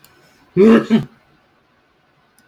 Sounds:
Sneeze